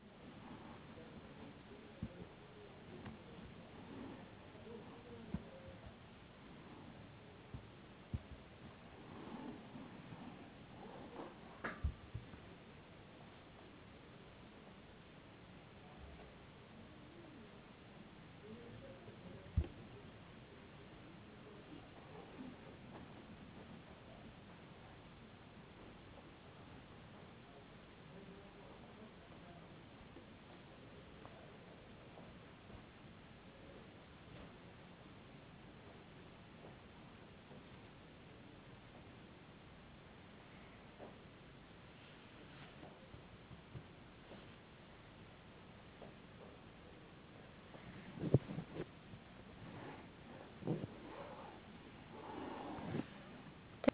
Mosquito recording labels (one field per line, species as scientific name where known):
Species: no mosquito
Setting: insect culture